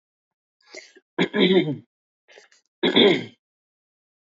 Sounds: Throat clearing